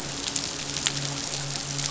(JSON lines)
{"label": "biophony, midshipman", "recorder": "SoundTrap 500"}